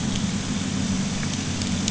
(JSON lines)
{"label": "anthrophony, boat engine", "recorder": "HydroMoth"}